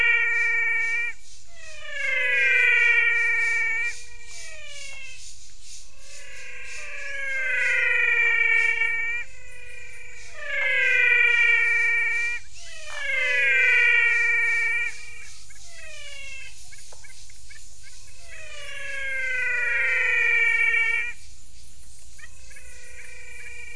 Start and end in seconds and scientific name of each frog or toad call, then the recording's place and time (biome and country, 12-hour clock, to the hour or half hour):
0.0	23.7	Physalaemus albonotatus
11.1	23.7	Physalaemus nattereri
Cerrado, Brazil, 6:30pm